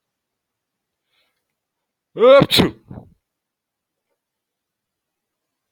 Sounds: Sneeze